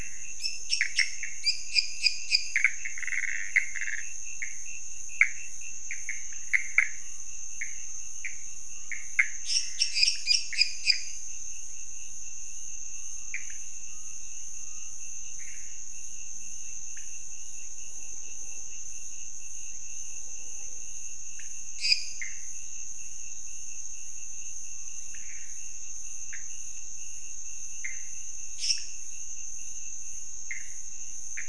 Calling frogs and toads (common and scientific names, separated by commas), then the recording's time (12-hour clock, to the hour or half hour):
Pithecopus azureus, pointedbelly frog (Leptodactylus podicipinus), lesser tree frog (Dendropsophus minutus)
~2am